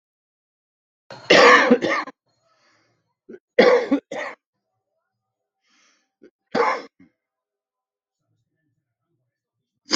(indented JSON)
{
  "expert_labels": [
    {
      "quality": "good",
      "cough_type": "dry",
      "dyspnea": false,
      "wheezing": false,
      "stridor": false,
      "choking": false,
      "congestion": false,
      "nothing": true,
      "diagnosis": "COVID-19",
      "severity": "mild"
    }
  ],
  "age": 59,
  "gender": "male",
  "respiratory_condition": true,
  "fever_muscle_pain": false,
  "status": "symptomatic"
}